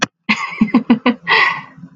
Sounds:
Laughter